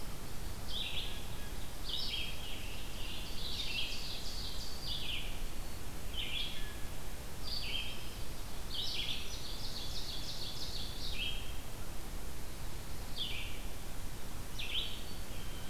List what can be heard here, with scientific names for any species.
Vireo olivaceus, Seiurus aurocapilla, Setophaga virens, Poecile atricapillus